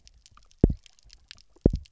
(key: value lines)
label: biophony, double pulse
recorder: SoundTrap 300